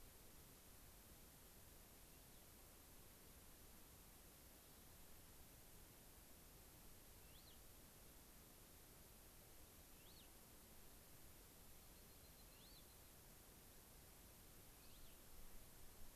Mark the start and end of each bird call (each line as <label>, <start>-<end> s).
Cassin's Finch (Haemorhous cassinii), 7.1-7.5 s
Cassin's Finch (Haemorhous cassinii), 9.9-10.3 s
Dark-eyed Junco (Junco hyemalis), 11.7-13.2 s
Cassin's Finch (Haemorhous cassinii), 12.4-12.8 s
Cassin's Finch (Haemorhous cassinii), 14.7-15.2 s